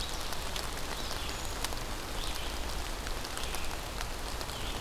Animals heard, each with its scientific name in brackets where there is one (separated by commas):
Red-eyed Vireo (Vireo olivaceus), Brown Creeper (Certhia americana)